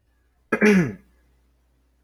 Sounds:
Throat clearing